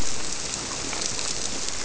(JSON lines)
{"label": "biophony", "recorder": "SoundTrap 300"}